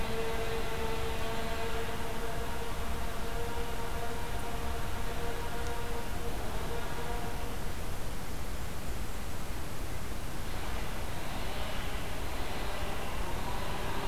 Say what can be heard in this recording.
Golden-crowned Kinglet